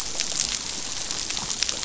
{"label": "biophony, dolphin", "recorder": "SoundTrap 500"}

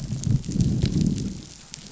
{"label": "biophony, growl", "recorder": "SoundTrap 500"}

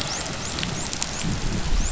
{"label": "biophony, dolphin", "recorder": "SoundTrap 500"}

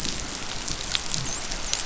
{"label": "biophony, dolphin", "recorder": "SoundTrap 500"}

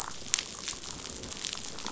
{"label": "biophony, damselfish", "recorder": "SoundTrap 500"}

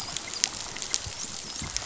{"label": "biophony, dolphin", "recorder": "SoundTrap 500"}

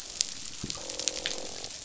{"label": "biophony, croak", "recorder": "SoundTrap 500"}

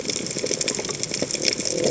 {"label": "biophony", "recorder": "HydroMoth"}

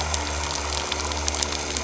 {"label": "anthrophony, boat engine", "recorder": "SoundTrap 300"}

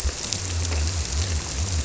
{"label": "biophony", "recorder": "SoundTrap 300"}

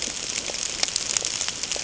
{"label": "ambient", "recorder": "HydroMoth"}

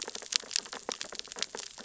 {"label": "biophony, sea urchins (Echinidae)", "recorder": "SoundTrap 600 or HydroMoth"}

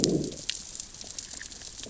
{"label": "biophony, growl", "recorder": "SoundTrap 600 or HydroMoth"}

